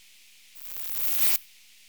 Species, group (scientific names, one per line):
Poecilimon artedentatus
Orthoptera